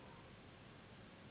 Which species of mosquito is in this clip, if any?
Anopheles gambiae s.s.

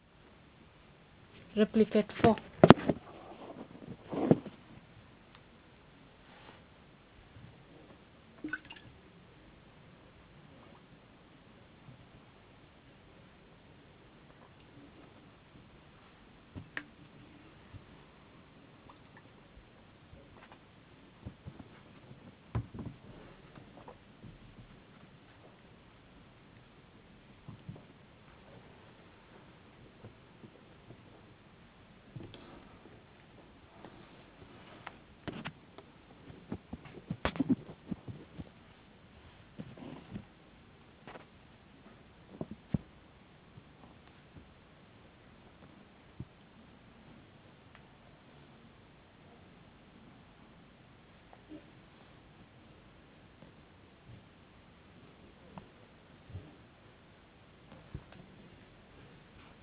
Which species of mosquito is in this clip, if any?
no mosquito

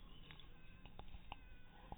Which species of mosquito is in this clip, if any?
mosquito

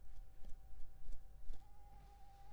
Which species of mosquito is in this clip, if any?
Anopheles squamosus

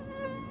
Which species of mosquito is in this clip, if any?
Anopheles dirus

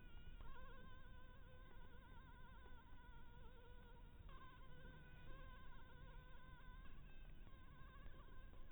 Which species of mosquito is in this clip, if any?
Anopheles dirus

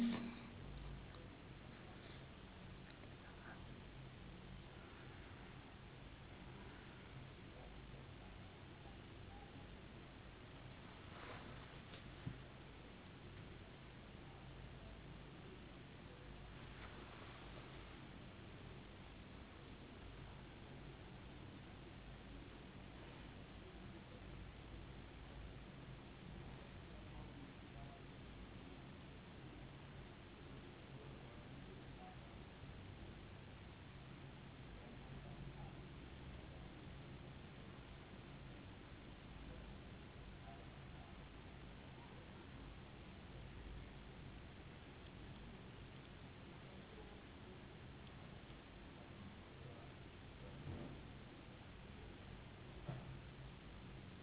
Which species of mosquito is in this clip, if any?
no mosquito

